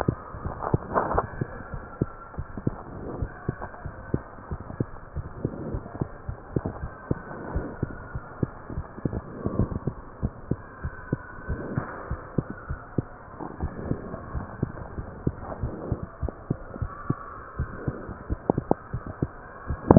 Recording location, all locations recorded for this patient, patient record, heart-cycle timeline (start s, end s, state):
mitral valve (MV)
aortic valve (AV)+pulmonary valve (PV)+tricuspid valve (TV)+mitral valve (MV)
#Age: Child
#Sex: Male
#Height: 92.0 cm
#Weight: 15.2 kg
#Pregnancy status: False
#Murmur: Absent
#Murmur locations: nan
#Most audible location: nan
#Systolic murmur timing: nan
#Systolic murmur shape: nan
#Systolic murmur grading: nan
#Systolic murmur pitch: nan
#Systolic murmur quality: nan
#Diastolic murmur timing: nan
#Diastolic murmur shape: nan
#Diastolic murmur grading: nan
#Diastolic murmur pitch: nan
#Diastolic murmur quality: nan
#Outcome: Normal
#Campaign: 2015 screening campaign
0.00	1.46	unannotated
1.46	1.68	diastole
1.68	1.84	S1
1.84	1.98	systole
1.98	2.10	S2
2.10	2.34	diastole
2.34	2.48	S1
2.48	2.66	systole
2.66	2.76	S2
2.76	3.19	diastole
3.19	3.30	S1
3.30	3.45	systole
3.45	3.58	S2
3.58	3.82	diastole
3.82	3.94	S1
3.94	4.09	systole
4.09	4.22	S2
4.22	4.49	diastole
4.49	4.60	S1
4.60	4.76	systole
4.76	4.88	S2
4.88	5.16	diastole
5.16	5.26	S1
5.26	5.40	systole
5.40	5.51	S2
5.51	5.71	diastole
5.71	5.82	S1
5.82	5.98	systole
5.98	6.08	S2
6.08	6.26	diastole
6.26	6.38	S1
6.38	6.53	systole
6.53	6.62	S2
6.62	6.79	diastole
6.79	6.88	S1
6.88	19.98	unannotated